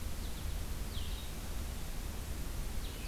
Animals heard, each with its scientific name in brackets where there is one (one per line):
Blue-headed Vireo (Vireo solitarius)